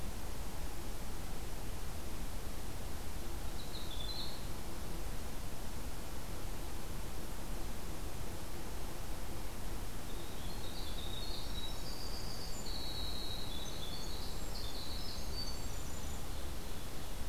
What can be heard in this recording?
Winter Wren, Ovenbird